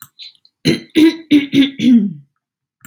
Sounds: Throat clearing